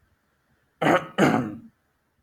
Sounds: Throat clearing